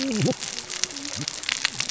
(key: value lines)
label: biophony, cascading saw
recorder: SoundTrap 600 or HydroMoth